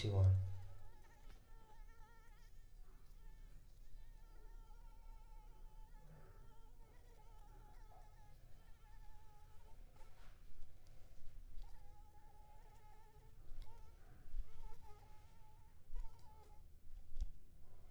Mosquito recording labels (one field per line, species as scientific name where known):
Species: Anopheles arabiensis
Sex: female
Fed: unfed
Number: one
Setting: cup